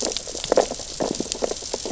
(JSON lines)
{"label": "biophony, sea urchins (Echinidae)", "recorder": "SoundTrap 600 or HydroMoth"}